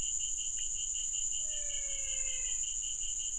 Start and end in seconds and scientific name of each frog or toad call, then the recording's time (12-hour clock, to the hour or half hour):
1.4	2.7	Physalaemus albonotatus
~7pm